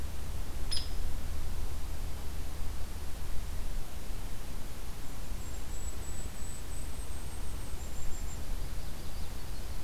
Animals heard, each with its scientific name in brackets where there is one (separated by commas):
Hairy Woodpecker (Dryobates villosus), Golden-crowned Kinglet (Regulus satrapa), Yellow-rumped Warbler (Setophaga coronata)